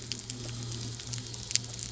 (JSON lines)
{"label": "anthrophony, boat engine", "recorder": "SoundTrap 300"}